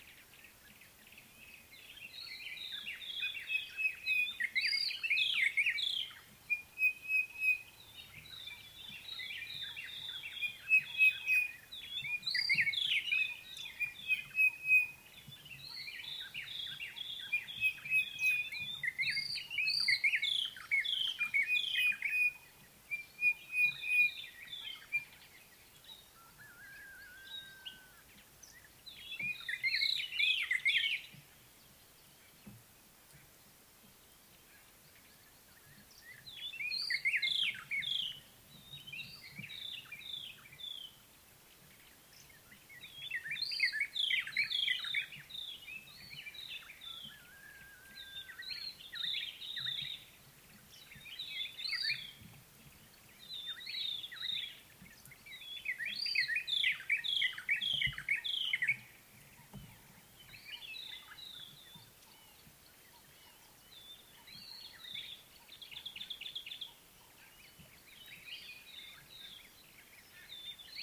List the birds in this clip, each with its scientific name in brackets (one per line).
Sulphur-breasted Bushshrike (Telophorus sulfureopectus)
White-browed Robin-Chat (Cossypha heuglini)
Common Bulbul (Pycnonotus barbatus)